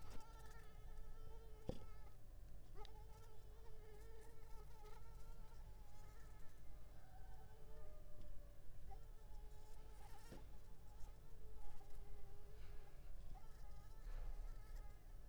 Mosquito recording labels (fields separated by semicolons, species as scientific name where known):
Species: Anopheles arabiensis; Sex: female; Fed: unfed; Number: one; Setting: cup